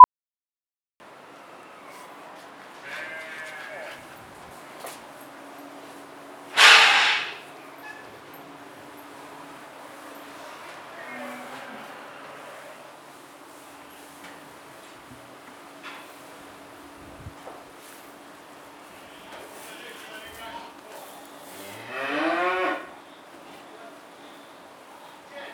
Does the bleat of the sheep continue as the time goes on?
no